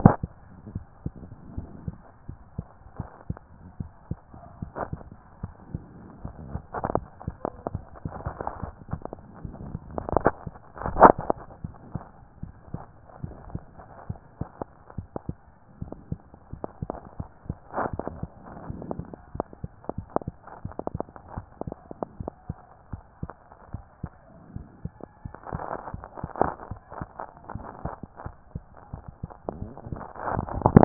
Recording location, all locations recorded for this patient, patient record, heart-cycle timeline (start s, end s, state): mitral valve (MV)
aortic valve (AV)+pulmonary valve (PV)+tricuspid valve (TV)+mitral valve (MV)
#Age: Child
#Sex: Male
#Height: 141.0 cm
#Weight: 37.5 kg
#Pregnancy status: False
#Murmur: Absent
#Murmur locations: nan
#Most audible location: nan
#Systolic murmur timing: nan
#Systolic murmur shape: nan
#Systolic murmur grading: nan
#Systolic murmur pitch: nan
#Systolic murmur quality: nan
#Diastolic murmur timing: nan
#Diastolic murmur shape: nan
#Diastolic murmur grading: nan
#Diastolic murmur pitch: nan
#Diastolic murmur quality: nan
#Outcome: Normal
#Campaign: 2014 screening campaign
0.00	0.39	unannotated
0.39	0.72	diastole
0.72	0.84	S1
0.84	1.04	systole
1.04	1.12	S2
1.12	1.56	diastole
1.56	1.68	S1
1.68	1.86	systole
1.86	1.96	S2
1.96	2.28	diastole
2.28	2.40	S1
2.40	2.56	systole
2.56	2.66	S2
2.66	2.98	diastole
2.98	3.08	S1
3.08	3.28	systole
3.28	3.38	S2
3.38	3.78	diastole
3.78	3.90	S1
3.90	4.10	systole
4.10	4.18	S2
4.18	4.60	diastole
4.60	4.72	S1
4.72	4.90	systole
4.90	5.00	S2
5.00	5.42	diastole
5.42	5.54	S1
5.54	5.72	systole
5.72	5.82	S2
5.82	6.22	diastole
6.22	6.34	S1
6.34	6.52	systole
6.52	6.62	S2
6.62	6.92	diastole
6.92	7.04	S1
7.04	7.26	systole
7.26	7.36	S2
7.36	7.72	diastole
7.72	7.84	S1
7.84	8.04	systole
8.04	8.14	S2
8.14	8.62	diastole
8.62	8.74	S1
8.74	8.90	systole
8.90	9.00	S2
9.00	9.44	diastole
9.44	9.54	S1
9.54	9.64	systole
9.64	9.78	S2
9.78	9.90	diastole
9.90	30.85	unannotated